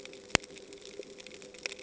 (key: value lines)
label: ambient
recorder: HydroMoth